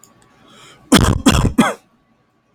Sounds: Cough